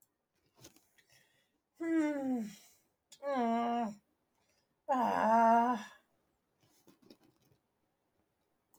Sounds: Sigh